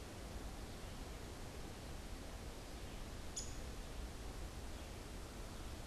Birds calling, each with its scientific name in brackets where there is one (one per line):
Downy Woodpecker (Dryobates pubescens)